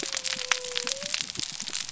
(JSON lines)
{"label": "biophony", "recorder": "SoundTrap 300"}